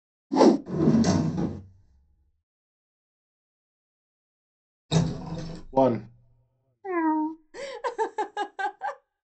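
At 0.3 seconds, there is whooshing. Next, at 0.65 seconds, the sound of a drawer opening or closing comes through. Later, at 4.89 seconds, a wooden door opens. Afterwards, at 5.75 seconds, someone says "One." Following that, at 6.83 seconds, a cat is audible. Finally, at 7.53 seconds, a person chuckles.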